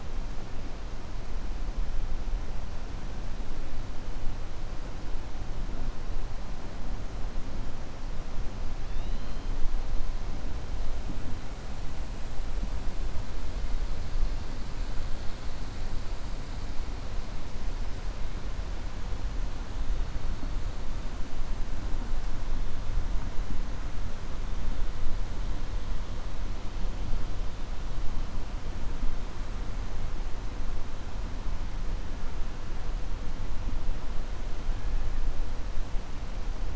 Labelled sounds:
8.8	9.4	killer whale, 2.6 to 4.2 kHz

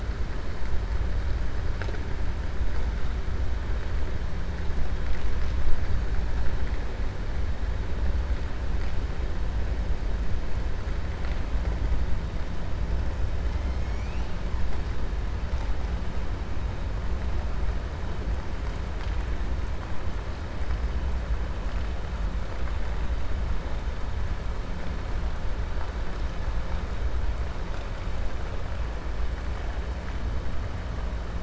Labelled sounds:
13.5	14.3	killer whale, 2.1 to 3.4 kHz

